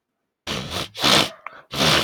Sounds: Sniff